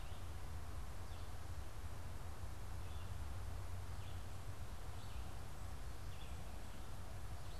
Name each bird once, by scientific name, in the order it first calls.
Vireo olivaceus